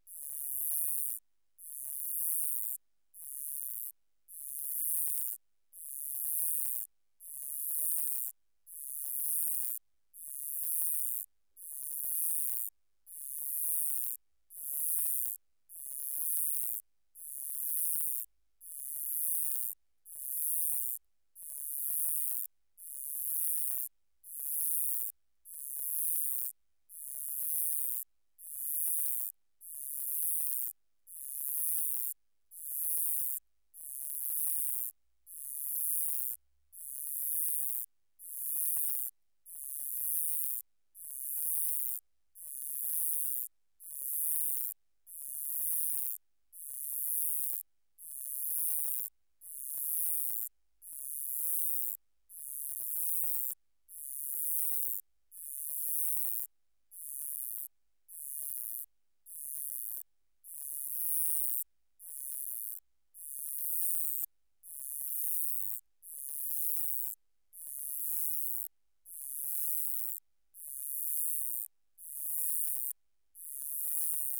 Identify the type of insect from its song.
orthopteran